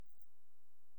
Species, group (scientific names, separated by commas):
Incertana incerta, Orthoptera